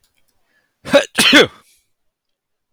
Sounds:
Sneeze